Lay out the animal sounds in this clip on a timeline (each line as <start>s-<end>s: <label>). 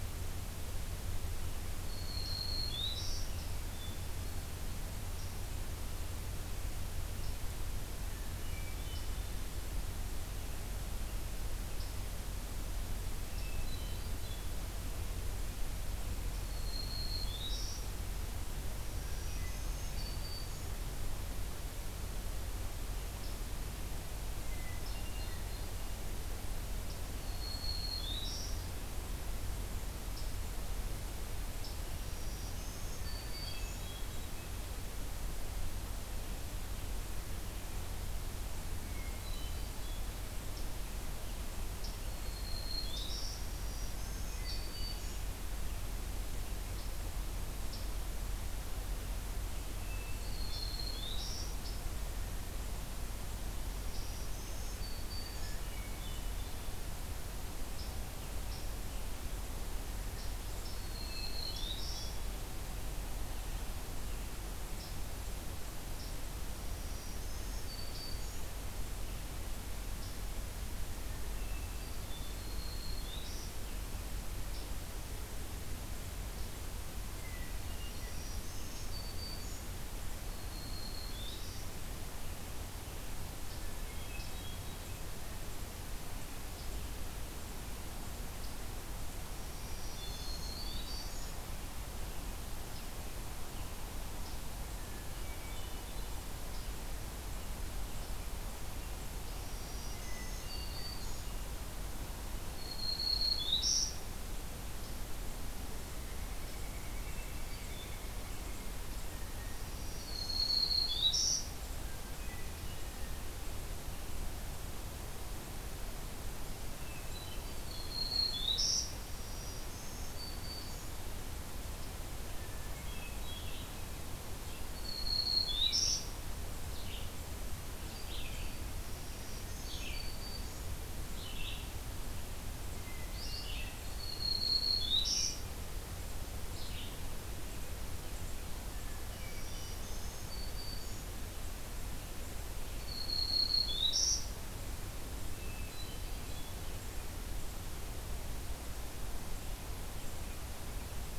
1.8s-3.4s: Black-throated Green Warbler (Setophaga virens)
3.7s-5.0s: Hermit Thrush (Catharus guttatus)
8.0s-9.3s: Hermit Thrush (Catharus guttatus)
13.2s-14.6s: Hermit Thrush (Catharus guttatus)
16.4s-17.9s: Black-throated Green Warbler (Setophaga virens)
18.8s-20.8s: Black-throated Green Warbler (Setophaga virens)
19.0s-20.2s: Hermit Thrush (Catharus guttatus)
24.4s-25.7s: Hermit Thrush (Catharus guttatus)
27.2s-28.6s: Black-throated Green Warbler (Setophaga virens)
31.9s-33.9s: Black-throated Green Warbler (Setophaga virens)
32.9s-34.6s: Hermit Thrush (Catharus guttatus)
38.7s-40.1s: Hermit Thrush (Catharus guttatus)
42.0s-45.3s: Black-throated Green Warbler (Setophaga virens)
43.8s-45.2s: Hermit Thrush (Catharus guttatus)
49.8s-50.9s: Hermit Thrush (Catharus guttatus)
49.9s-51.5s: Black-throated Green Warbler (Setophaga virens)
53.8s-55.6s: Black-throated Green Warbler (Setophaga virens)
55.3s-56.8s: Hermit Thrush (Catharus guttatus)
60.7s-62.1s: Black-throated Green Warbler (Setophaga virens)
61.0s-62.4s: Hermit Thrush (Catharus guttatus)
66.5s-68.5s: Black-throated Green Warbler (Setophaga virens)
71.2s-72.5s: Hermit Thrush (Catharus guttatus)
72.3s-73.5s: Black-throated Green Warbler (Setophaga virens)
77.0s-78.3s: Hermit Thrush (Catharus guttatus)
77.7s-79.7s: Black-throated Green Warbler (Setophaga virens)
80.1s-81.7s: Black-throated Green Warbler (Setophaga virens)
83.6s-84.8s: Hermit Thrush (Catharus guttatus)
89.4s-91.4s: Black-throated Green Warbler (Setophaga virens)
94.7s-96.3s: Hermit Thrush (Catharus guttatus)
99.4s-101.3s: Black-throated Green Warbler (Setophaga virens)
99.9s-101.5s: Hermit Thrush (Catharus guttatus)
102.5s-104.0s: Black-throated Green Warbler (Setophaga virens)
105.7s-108.8s: Pileated Woodpecker (Dryocopus pileatus)
106.9s-108.2s: Hermit Thrush (Catharus guttatus)
109.5s-111.5s: Black-throated Green Warbler (Setophaga virens)
111.8s-112.7s: Hermit Thrush (Catharus guttatus)
116.6s-118.0s: Hermit Thrush (Catharus guttatus)
117.5s-121.0s: Black-throated Green Warbler (Setophaga virens)
122.2s-123.5s: Hermit Thrush (Catharus guttatus)
123.1s-137.0s: Red-eyed Vireo (Vireo olivaceus)
124.5s-126.1s: Black-throated Green Warbler (Setophaga virens)
127.7s-128.6s: Hermit Thrush (Catharus guttatus)
128.8s-130.7s: Black-throated Green Warbler (Setophaga virens)
132.8s-133.9s: Hermit Thrush (Catharus guttatus)
133.8s-135.5s: Black-throated Green Warbler (Setophaga virens)
138.6s-139.8s: Hermit Thrush (Catharus guttatus)
139.0s-141.1s: Black-throated Green Warbler (Setophaga virens)
142.8s-144.3s: Black-throated Green Warbler (Setophaga virens)
145.3s-146.6s: Hermit Thrush (Catharus guttatus)